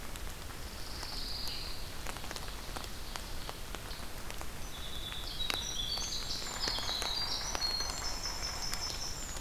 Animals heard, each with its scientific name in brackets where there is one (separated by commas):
Pine Warbler (Setophaga pinus), Yellow-bellied Sapsucker (Sphyrapicus varius), Winter Wren (Troglodytes hiemalis), Ovenbird (Seiurus aurocapilla)